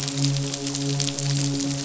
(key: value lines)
label: biophony, midshipman
recorder: SoundTrap 500